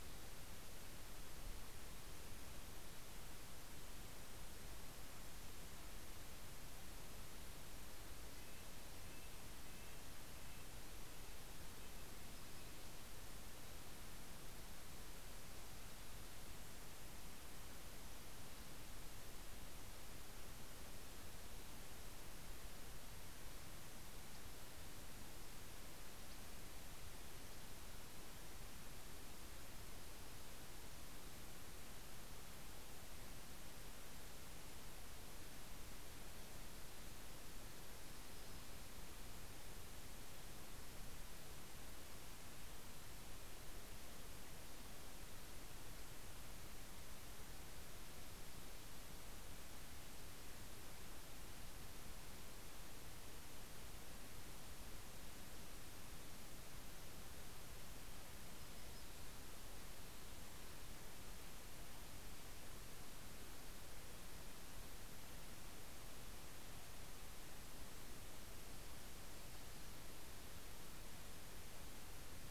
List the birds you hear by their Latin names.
Sitta canadensis